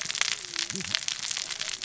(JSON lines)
{"label": "biophony, cascading saw", "recorder": "SoundTrap 600 or HydroMoth"}